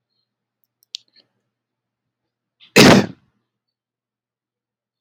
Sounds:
Sneeze